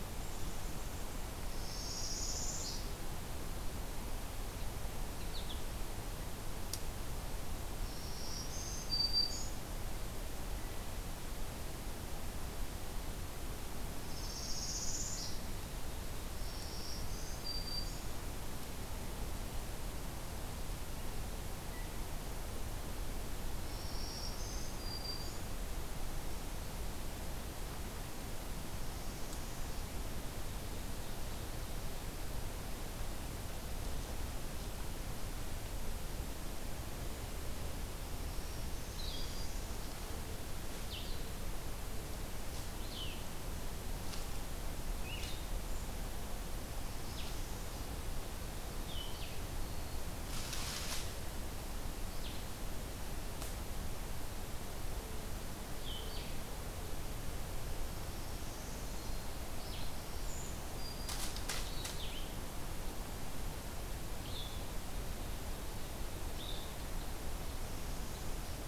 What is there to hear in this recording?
Black-capped Chickadee, Northern Parula, American Goldfinch, Black-throated Green Warbler, Blue-headed Vireo, Brown Creeper